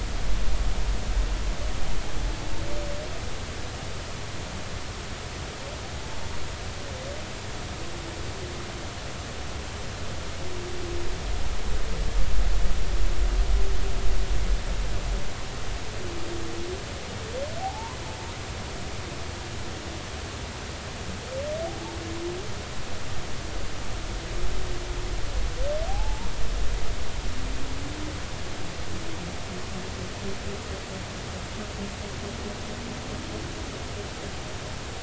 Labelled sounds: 17.6	18.0	humpback whale, 0.80 to 1.2 kHz
25.9	26.3	humpback whale, 0.80 to 1.0 kHz

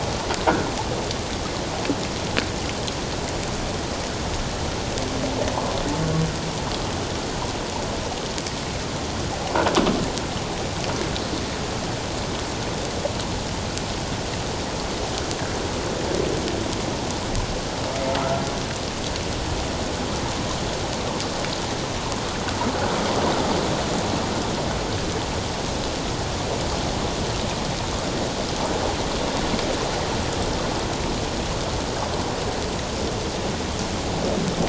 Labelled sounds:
5.5	5.8	humpback whale, 0.84 to 1.2 kHz

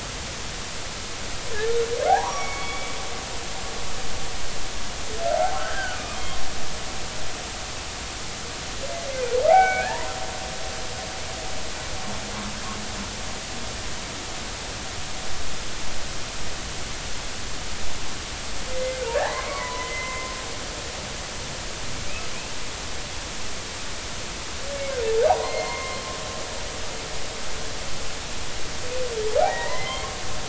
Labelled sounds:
2.1	3.0	humpback whale, 0.80 to 3.5 kHz
5.6	6.0	humpback whale, 1.4 to 1.8 kHz
9.5	10.1	humpback whale, 0.80 to 2.8 kHz
18.7	20.3	humpback whale, 0.80 to 2.3 kHz
25.3	26.0	humpback whale, 0.80 to 4.3 kHz
29.4	30.1	humpback whale, 0.80 to 2.2 kHz

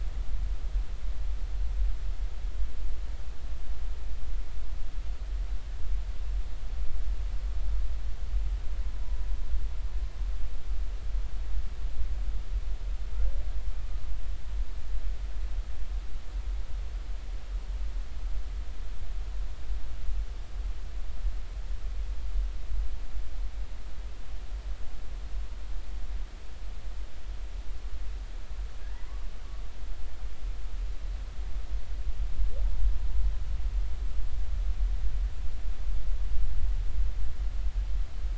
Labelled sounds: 28.8	29.1	humpback whale, 1.6 to 2.0 kHz

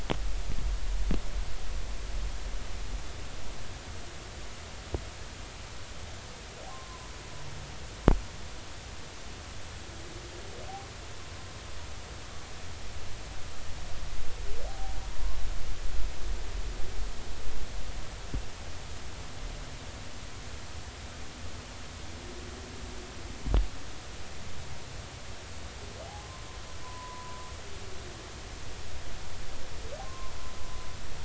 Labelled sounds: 6.7	7.1	humpback whale, 0.93 to 1.1 kHz
14.7	15.0	humpback whale, 0.80 to 0.83 kHz
26.2	26.4	humpback whale, 0.99 to 1.1 kHz
26.8	27.4	humpback whale, 0.93 to 1.1 kHz
30.0	30.4	humpback whale, 0.90 to 1.1 kHz

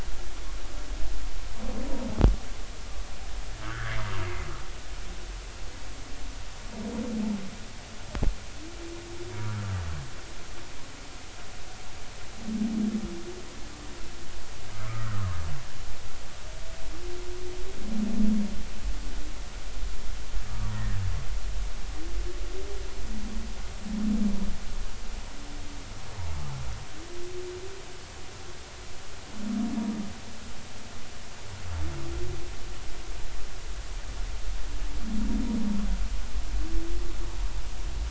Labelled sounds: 3.6	4.0	humpback whale, 1.1 to 1.8 kHz
14.7	15.3	humpback whale, 1.2 to 1.6 kHz
20.7	21.0	humpback whale, 1.6 to 2.0 kHz

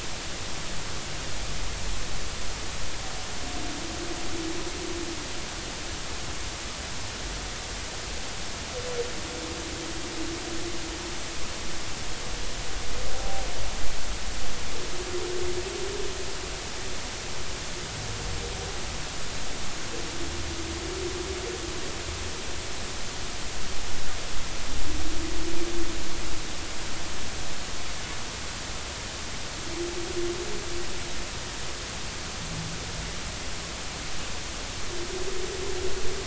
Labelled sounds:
13.1	13.4	humpback whale, 0.80 to 0.83 kHz

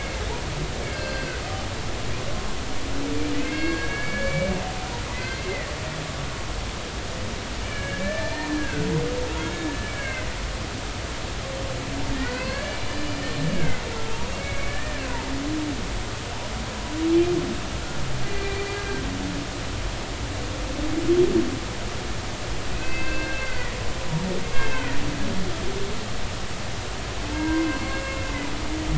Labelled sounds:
0.9	1.4	humpback whale, 1.4 to 4.8 kHz
3.4	5.7	humpback whale, 1.6 to 4.9 kHz
7.6	8.9	humpback whale, 1.4 to 2.8 kHz
10.0	10.9	humpback whale, 1.5 to 2.3 kHz
12.1	13.8	humpback whale, 0.93 to 4.3 kHz
14.3	15.0	humpback whale, 1.7 to 2.3 kHz
17.8	19.0	humpback whale, 1.3 to 2.4 kHz
22.7	23.8	humpback whale, 1.4 to 4.8 kHz
24.4	25.0	humpback whale, 1.8 to 2.8 kHz
27.3	28.2	humpback whale, 0.86 to 2.8 kHz

